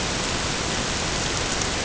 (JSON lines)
{"label": "ambient", "recorder": "HydroMoth"}